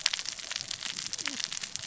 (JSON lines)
{"label": "biophony, cascading saw", "recorder": "SoundTrap 600 or HydroMoth"}